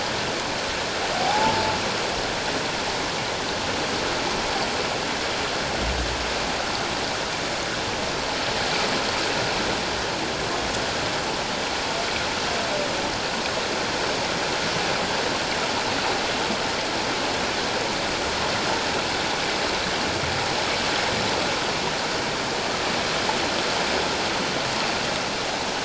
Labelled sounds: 1.2	1.6	humpback whale, 0.78 to 0.94 kHz

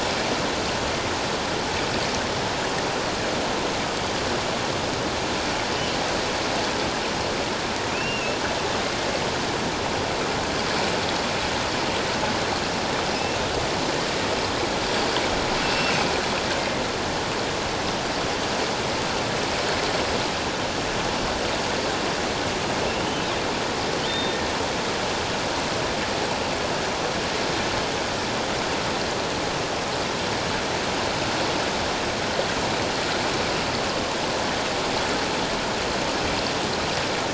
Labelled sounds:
7.9	8.4	killer whale, offshore, 2.3 to 2.8 kHz
13.1	13.4	killer whale, offshore, 2.5 to 2.8 kHz
15.6	15.9	killer whale, offshore, 2.6 to 5.4 kHz
24.1	24.4	killer whale, offshore, 3.5 to 3.7 kHz

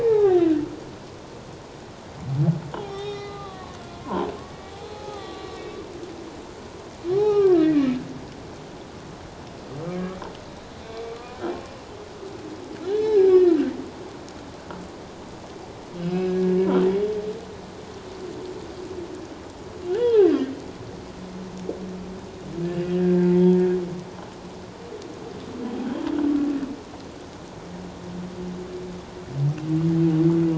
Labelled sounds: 0.0	0.5	humpback whale, 0.78 to 2.0 kHz
2.8	5.6	humpback whale, 0.78 to 4.1 kHz
7.1	7.9	humpback whale, 0.78 to 3.8 kHz
11.0	11.4	humpback whale, 1.1 to 1.2 kHz
12.9	13.6	humpback whale, 0.78 to 1.9 kHz
16.0	16.6	humpback whale, 1.6 to 3.0 kHz
19.9	20.3	humpback whale, 0.78 to 3.0 kHz
22.9	23.6	humpback whale, 0.84 to 1.8 kHz

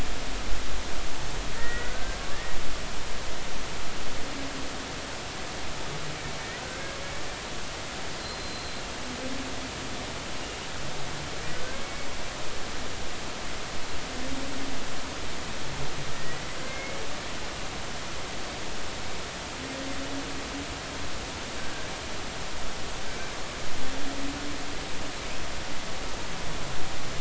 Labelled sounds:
1.6	2.6	humpback whale, 1.4 to 2.1 kHz
6.6	7.0	humpback whale, 1.5 to 1.7 kHz
8.2	8.8	humpback whale, 4.0 to 4.2 kHz
11.7	12.1	humpback whale, 2.1 to 2.3 kHz
16.1	17.0	humpback whale, 1.8 to 2.3 kHz

